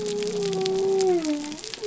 {"label": "biophony", "recorder": "SoundTrap 300"}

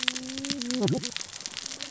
{"label": "biophony, cascading saw", "recorder": "SoundTrap 600 or HydroMoth"}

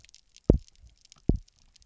{"label": "biophony, double pulse", "recorder": "SoundTrap 300"}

